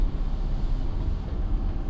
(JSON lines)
{"label": "anthrophony, boat engine", "recorder": "SoundTrap 300"}